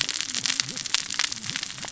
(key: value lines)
label: biophony, cascading saw
recorder: SoundTrap 600 or HydroMoth